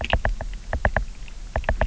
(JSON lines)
{"label": "biophony, knock", "recorder": "SoundTrap 300"}